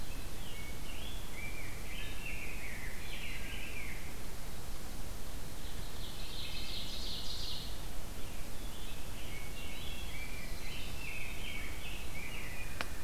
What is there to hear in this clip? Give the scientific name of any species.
Pheucticus ludovicianus, Seiurus aurocapilla, Hylocichla mustelina